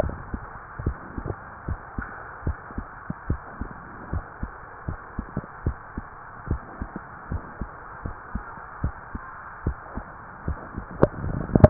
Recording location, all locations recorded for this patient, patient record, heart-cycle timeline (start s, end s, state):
mitral valve (MV)
aortic valve (AV)+pulmonary valve (PV)+tricuspid valve (TV)+mitral valve (MV)
#Age: Child
#Sex: Female
#Height: 149.0 cm
#Weight: 35.6 kg
#Pregnancy status: False
#Murmur: Absent
#Murmur locations: nan
#Most audible location: nan
#Systolic murmur timing: nan
#Systolic murmur shape: nan
#Systolic murmur grading: nan
#Systolic murmur pitch: nan
#Systolic murmur quality: nan
#Diastolic murmur timing: nan
#Diastolic murmur shape: nan
#Diastolic murmur grading: nan
#Diastolic murmur pitch: nan
#Diastolic murmur quality: nan
#Outcome: Abnormal
#Campaign: 2015 screening campaign
0.00	0.31	unannotated
0.31	0.42	S2
0.42	0.84	diastole
0.84	0.98	S1
0.98	1.16	systole
1.16	1.28	S2
1.28	1.66	diastole
1.66	1.80	S1
1.80	1.96	systole
1.96	2.06	S2
2.06	2.44	diastole
2.44	2.58	S1
2.58	2.76	systole
2.76	2.86	S2
2.86	3.26	diastole
3.26	3.40	S1
3.40	3.60	systole
3.60	3.70	S2
3.70	4.12	diastole
4.12	4.24	S1
4.24	4.42	systole
4.42	4.52	S2
4.52	4.88	diastole
4.88	4.98	S1
4.98	5.16	systole
5.16	5.28	S2
5.28	5.64	diastole
5.64	5.78	S1
5.78	5.95	systole
5.95	6.06	S2
6.06	6.48	diastole
6.48	6.62	S1
6.62	6.80	systole
6.80	6.88	S2
6.88	7.30	diastole
7.30	7.42	S1
7.42	7.60	systole
7.60	7.68	S2
7.68	8.00	diastole
8.00	8.16	S1
8.16	8.33	systole
8.33	8.42	S2
8.42	8.80	diastole
8.80	8.92	S1
8.92	9.12	systole
9.12	9.22	S2
9.22	9.64	diastole
9.64	9.78	S1
9.78	9.95	systole
9.95	10.04	S2
10.04	10.44	diastole
10.44	10.60	S1
10.60	10.75	systole
10.75	10.88	S2
10.88	11.70	unannotated